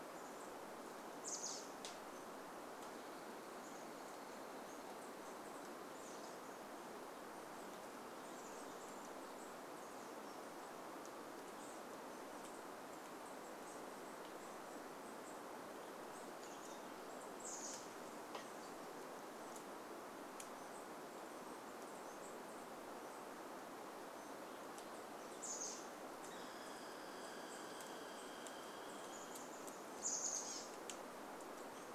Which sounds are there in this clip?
Chestnut-backed Chickadee call, Douglas squirrel rattle, unidentified sound